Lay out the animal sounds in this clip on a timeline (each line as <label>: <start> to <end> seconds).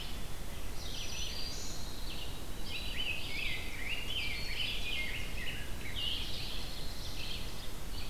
Red-eyed Vireo (Vireo olivaceus): 0.0 to 8.1 seconds
Black-throated Green Warbler (Setophaga virens): 0.7 to 1.8 seconds
Dark-eyed Junco (Junco hyemalis): 0.9 to 2.5 seconds
Rose-breasted Grosbeak (Pheucticus ludovicianus): 2.7 to 6.2 seconds
Ovenbird (Seiurus aurocapilla): 6.0 to 7.6 seconds